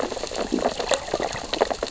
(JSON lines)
{"label": "biophony, sea urchins (Echinidae)", "recorder": "SoundTrap 600 or HydroMoth"}